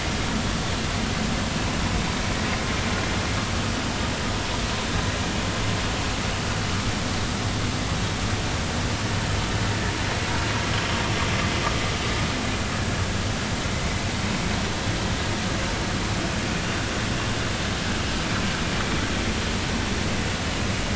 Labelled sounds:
12.8	13.0	vessel noise, 1.6 to 1.8 kHz

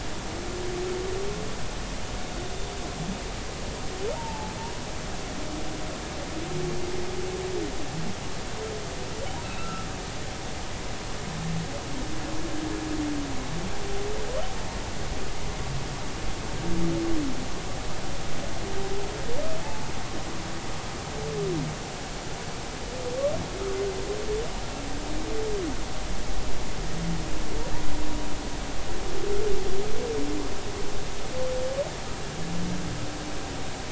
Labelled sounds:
4.2	4.5	humpback whale, 0.80 to 0.99 kHz
9.4	9.9	humpback whale, 1.2 to 2.8 kHz
19.6	19.9	humpback whale, 0.83 to 0.93 kHz

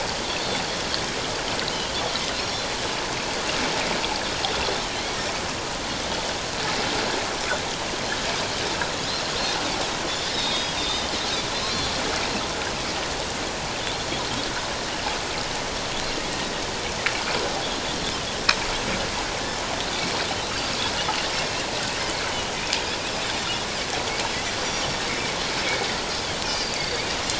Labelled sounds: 2.4	2.7	Pacific white-sided dolphin, 5.2 to 5.7 kHz
10.2	11.9	Pacific white-sided dolphin, 3.2 to 5.0 kHz
21.3	21.6	Pacific white-sided dolphin, 5.3 to 5.5 kHz
26.5	27.1	Pacific white-sided dolphin, 1.8 to 4.9 kHz

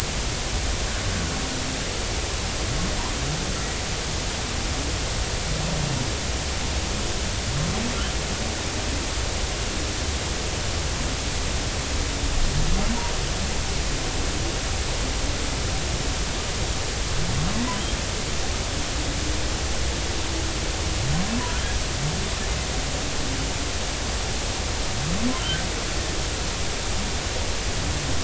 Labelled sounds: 25.4	25.6	humpback whale, 1.3 to 1.6 kHz

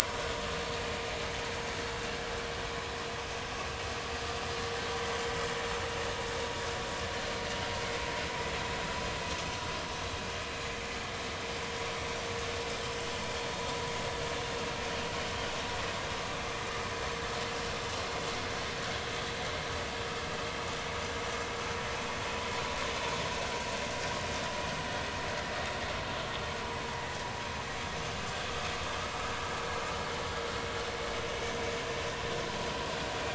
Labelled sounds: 0.1	0.3	vessel noise, 5.2 to 5.5 kHz

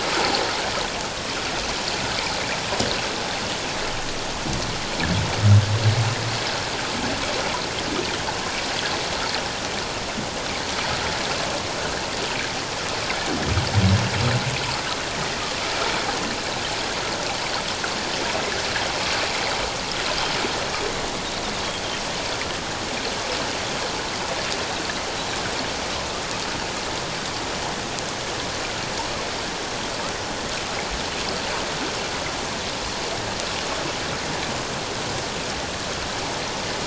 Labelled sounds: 11.8	12.0	Pacific white-sided dolphin, 1.4 to 1.8 kHz
15.1	15.4	Pacific white-sided dolphin, 1.8 to 2.1 kHz

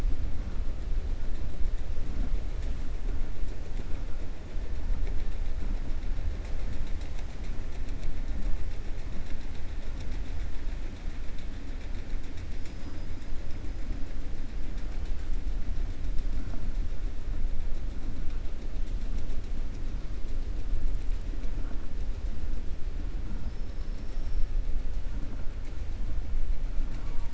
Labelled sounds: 23.4	24.5	killer whale, 4.5 to 5.8 kHz

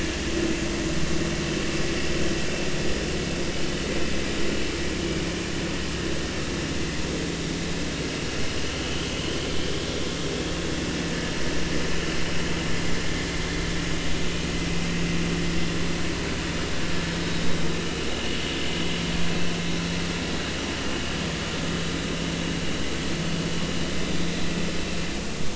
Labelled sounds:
17.1	18.4	vessel noise, 2.8 to 3.9 kHz

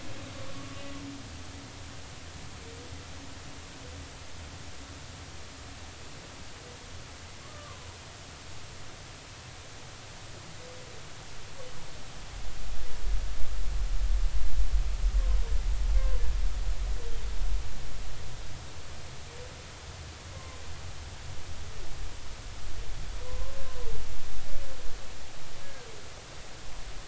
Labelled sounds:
7.5	8.0	humpback whale, 0.93 to 1.3 kHz
16.0	16.2	humpback whale, 1.4 to 1.6 kHz
23.3	23.5	humpback whale, 0.96 to 1.1 kHz
25.6	25.9	humpback whale, 1.5 to 1.7 kHz

